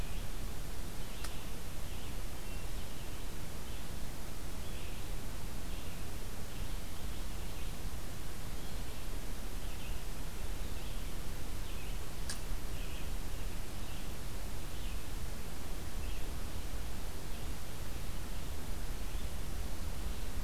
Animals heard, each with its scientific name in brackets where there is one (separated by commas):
Red-eyed Vireo (Vireo olivaceus)